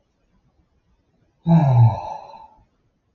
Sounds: Sigh